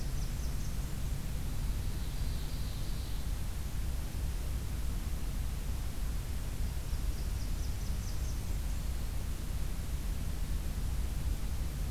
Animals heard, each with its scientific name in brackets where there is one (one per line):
Black-throated Green Warbler (Setophaga virens)
Blackburnian Warbler (Setophaga fusca)
Ovenbird (Seiurus aurocapilla)